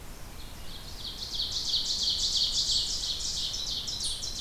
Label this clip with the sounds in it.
Ovenbird, unknown mammal